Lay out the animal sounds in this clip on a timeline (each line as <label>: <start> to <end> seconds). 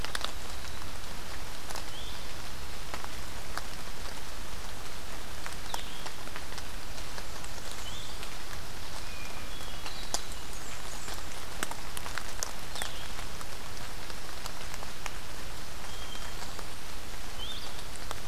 Blue-headed Vireo (Vireo solitarius): 1.7 to 2.2 seconds
Blue-headed Vireo (Vireo solitarius): 5.5 to 6.1 seconds
Blackburnian Warbler (Setophaga fusca): 6.9 to 8.3 seconds
Blue-headed Vireo (Vireo solitarius): 7.6 to 8.2 seconds
Hermit Thrush (Catharus guttatus): 8.9 to 10.5 seconds
Blackburnian Warbler (Setophaga fusca): 9.9 to 11.4 seconds
Blue-headed Vireo (Vireo solitarius): 12.6 to 12.9 seconds
Hermit Thrush (Catharus guttatus): 15.6 to 16.8 seconds
Blue-headed Vireo (Vireo solitarius): 17.3 to 17.7 seconds